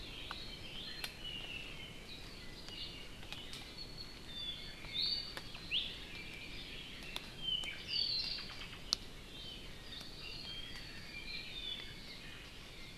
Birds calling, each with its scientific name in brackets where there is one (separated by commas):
Apapane (Himatione sanguinea), Iiwi (Drepanis coccinea), Hawaii Amakihi (Chlorodrepanis virens)